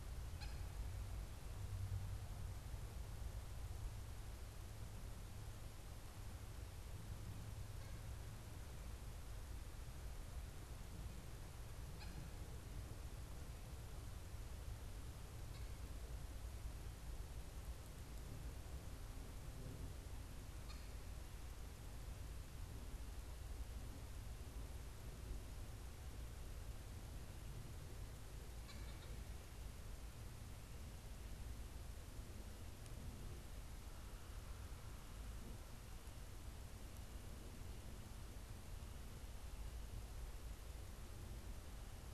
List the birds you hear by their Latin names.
Accipiter cooperii